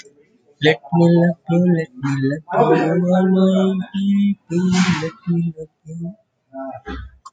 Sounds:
Sigh